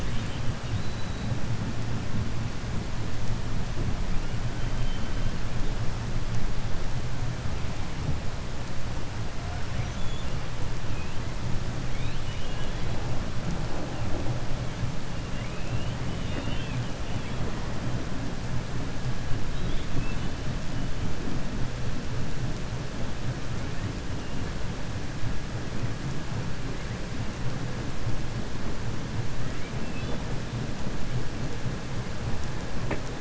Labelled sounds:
9.7	10.3	killer whale, 1.8 to 3.6 kHz
11.8	12.9	killer whale, 2.1 to 4.2 kHz
16.1	16.8	killer whale, 0.55 to 3.7 kHz
19.4	20.3	killer whale, 2.6 to 3.9 kHz

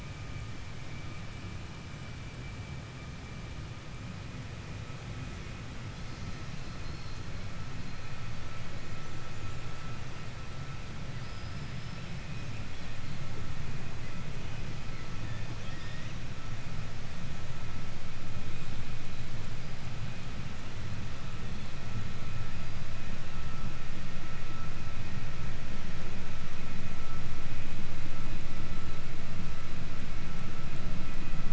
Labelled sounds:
5.9	8.6	killer whale, 2.6 to 8.0 kHz
11.0	12.4	killer whale, 4.4 to 5.6 kHz
15.5	16.2	killer whale, 1.4 to 8.0 kHz
19.5	20.1	killer whale, 4.5 to 5.2 kHz

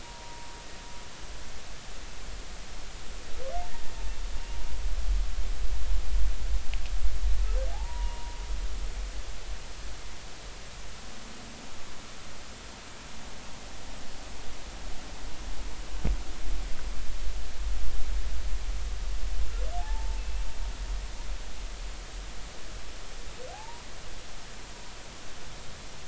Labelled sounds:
7.7	8.4	humpback whale, 0.80 to 2.9 kHz
19.8	20.4	humpback whale, 0.80 to 2.7 kHz
23.5	23.9	humpback whale, 0.80 to 1.0 kHz

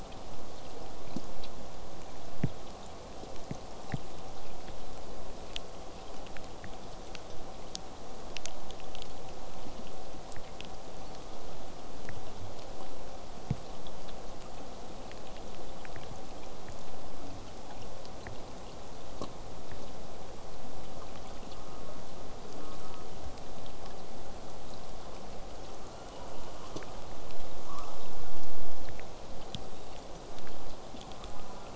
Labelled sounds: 21.5	22.0	killer whale, southern resident, J pod, call S04, 0.21 to 1.4 kHz
22.6	23.1	killer whale, southern resident, J pod, call S04, 0.33 to 1.5 kHz
25.8	26.9	killer whale, southern resident, J pod, 1.1 to 8.0 kHz
27.6	28.1	killer whale, southern resident, J pod, 0.25 to 1.5 kHz
29.1	31.2	killer whale, southern resident, J pod, whistle, 3.3 to 8.0 kHz
31.1	31.7	killer whale, southern resident, J pod, call S04, 0.21 to 1.5 kHz

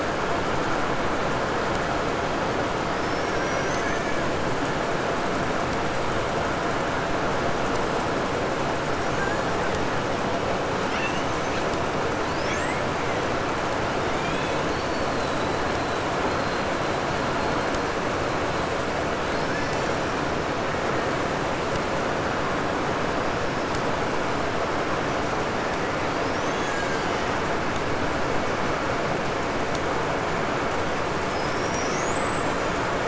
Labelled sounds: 2.9	4.4	killer whale, 0.98 to 6.4 kHz
8.9	9.8	killer whale, 1.2 to 7.1 kHz
10.7	11.7	killer whale, 0.82 to 6.5 kHz
12.3	13.3	killer whale, 1.1 to 8.0 kHz
14.0	18.8	killer whale, 0.93 to 8.0 kHz
19.2	20.1	killer whale, Bigg's (transient), 1.1 to 8.0 kHz
25.5	27.9	killer whale, Bigg's (transient), 1.1 to 7.8 kHz
31.1	33.0	killer whale, 4.6 to 8.0 kHz

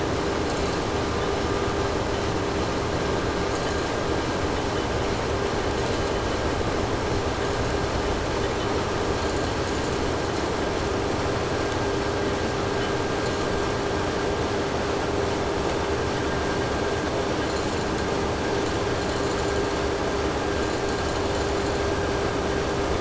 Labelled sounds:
0.3	1.0	vessel noise, 3.8 to 8.0 kHz
3.4	4.0	vessel noise, 2.7 to 8.0 kHz
5.6	6.4	vessel noise, 2.9 to 8.0 kHz
7.4	7.8	vessel noise, 2.6 to 8.0 kHz
9.1	10.6	vessel noise, 3.1 to 8.0 kHz
13.2	13.8	vessel noise, 3.4 to 8.0 kHz
17.5	18.3	vessel noise, 3.5 to 8.0 kHz
18.6	20.0	vessel noise, 3.6 to 8.0 kHz
20.4	22.0	vessel noise, 3.7 to 8.0 kHz

